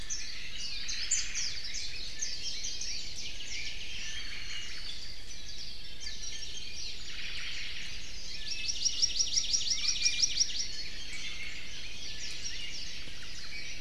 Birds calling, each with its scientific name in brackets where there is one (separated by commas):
Omao (Myadestes obscurus), Warbling White-eye (Zosterops japonicus), Hawaii Amakihi (Chlorodrepanis virens), Iiwi (Drepanis coccinea)